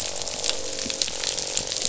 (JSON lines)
{"label": "biophony, croak", "recorder": "SoundTrap 500"}